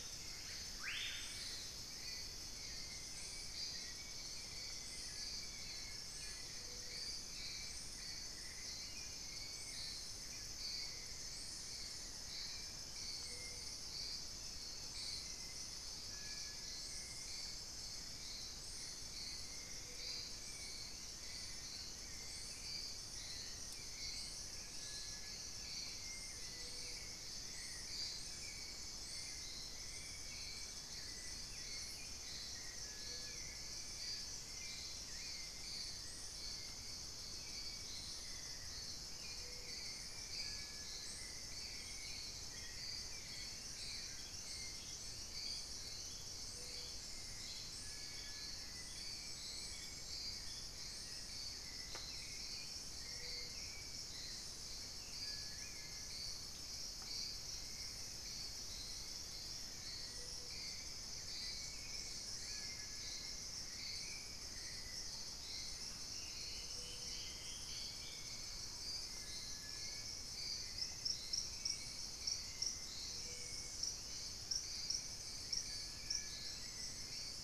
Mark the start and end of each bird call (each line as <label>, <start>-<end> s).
Screaming Piha (Lipaugus vociferans), 0.0-1.6 s
Hauxwell's Thrush (Turdus hauxwelli), 1.5-77.4 s
unidentified bird, 17.3-17.8 s
Gray Antwren (Myrmotherula menetriesii), 20.6-27.0 s
Gray Antwren (Myrmotherula menetriesii), 42.2-47.4 s
Collared Trogon (Trogon collaris), 43.1-44.6 s
Dusky-throated Antshrike (Thamnomanes ardesiacus), 65.0-68.6 s
Gray Antwren (Myrmotherula menetriesii), 70.0-77.4 s